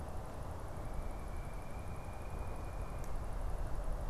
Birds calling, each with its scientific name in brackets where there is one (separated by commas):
unidentified bird